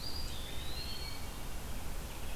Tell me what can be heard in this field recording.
Eastern Wood-Pewee, Red-eyed Vireo